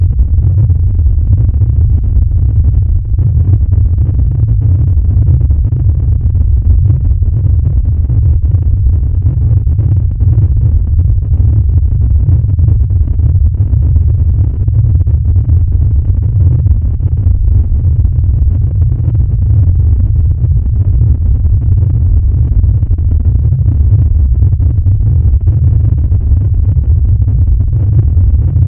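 Muffled rumbling, possibly from an aircraft taking off. 0.0 - 28.7

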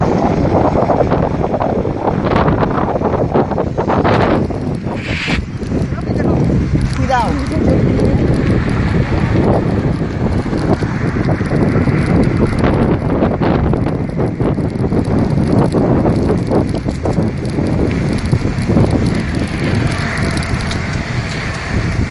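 Muffled, heavy, and rapid wind sounds. 0.0 - 5.1
Friction sound, possibly from bicycle tires or brakes. 5.1 - 5.9
People talking over strong wind noise. 5.9 - 8.9
Heavy winds blowing in opposite directions. 8.9 - 19.5
Flickering sound, possibly of a bicycle passing by. 19.5 - 22.1

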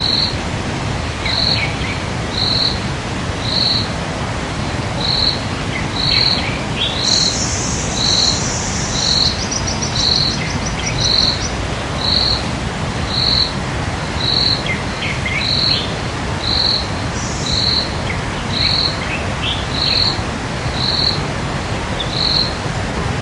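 A rushing sound hums loudly in a monotonous pattern. 0.0 - 23.2
A cricket chirps loudly in a repeating pattern. 0.0 - 23.2
A bird sings quietly in a steady pattern outdoors in a forest. 1.7 - 2.4
A bird sings quietly in a steady pattern outdoors in a forest. 5.7 - 6.9
A bird sings quietly in a steady pattern in the distance. 7.1 - 9.2
A bird sings a short, repeating pattern outside. 9.1 - 11.6
A bird sings quietly in a steady pattern outdoors in a forest. 10.4 - 11.0
A bird sings quietly in a steady pattern outdoors in a forest. 14.6 - 15.9
A bird sings quietly in a steady pattern in the distance. 17.1 - 17.7
A bird sings quietly in a steady pattern outdoors in a forest. 18.2 - 20.1

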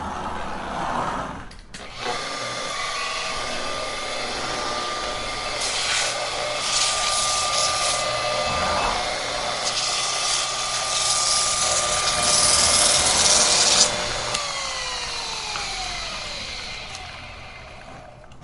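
A small motor runs continuously after being turned on. 0.1 - 5.4
A small motorized machine is scratching or cutting something. 5.4 - 10.4
A small motorized machine is cutting something. 10.2 - 13.8
A small motorized machine is turning off. 13.8 - 18.4

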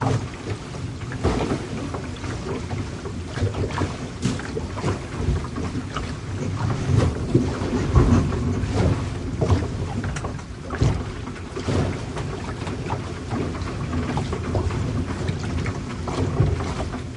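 Water sloshes against a boat moving at low speed. 0.0 - 17.1

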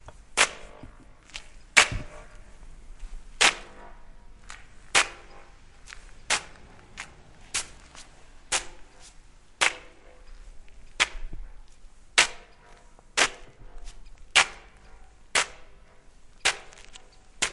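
Footsteps repeatedly stepping on a hard, gravel-like surface. 0.0 - 17.5

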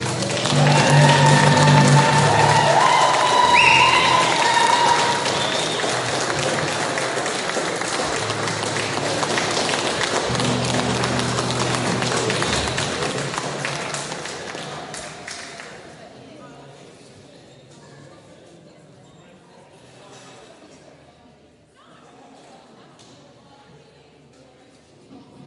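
People applauding and cheering. 0.0 - 15.9

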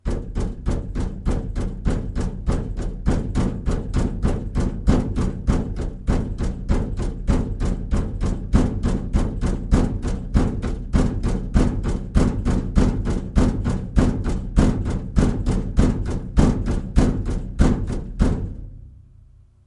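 A hammer strikes sheet metal with a constant beat. 0.0 - 18.9

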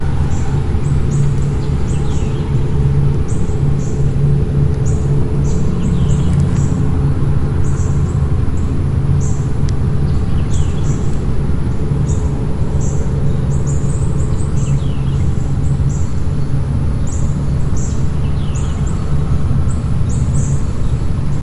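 Birds chirping with background noise. 0.0 - 21.4

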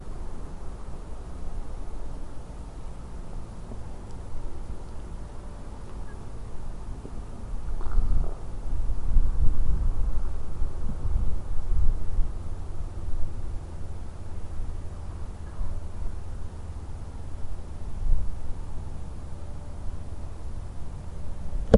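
A quiet, consistent radio static noise. 0.0 - 21.7
The quiet sound of an engine in the distance. 0.0 - 21.8
A quiet burp. 7.7 - 9.8
A dull thud. 21.4 - 21.8

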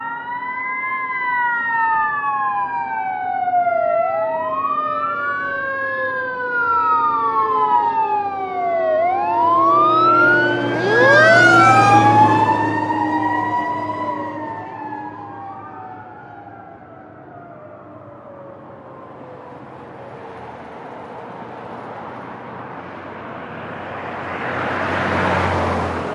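A fire truck with its siren on is driving by. 0.0 - 20.2
A police car drives by with its siren on. 0.0 - 20.2
A car is driving by. 18.9 - 26.1

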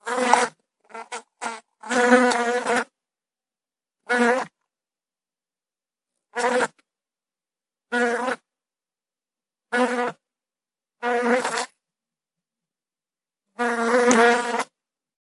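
A constant high-pitched buzzing with a fast, slightly uneven rhythm produced by a bee in flight. 0.0 - 0.6
A bee buzzes, its sound rising and fading as it moves through the air. 0.9 - 3.0
A bee buzzes, its sound rising and fading as it moves through the air. 4.0 - 14.7

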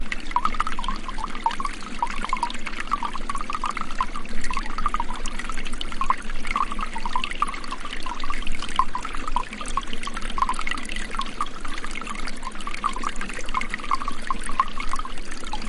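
Water is being poured continuously. 0.0 - 15.7

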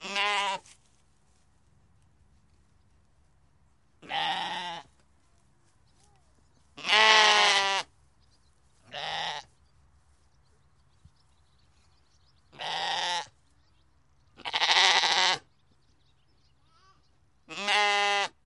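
A sheep bleats. 0.0 - 0.7
A goat bleats. 4.0 - 4.9
Goats and sheep bleat simultaneously. 6.7 - 7.9
A goat bleats. 8.9 - 9.5
A goat bleats. 12.5 - 13.3
Several goats bleat simultaneously. 14.4 - 15.4
A sheep bleats. 17.5 - 18.3

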